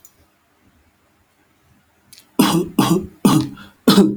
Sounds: Cough